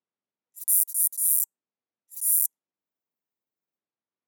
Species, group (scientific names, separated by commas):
Synephippius obvius, Orthoptera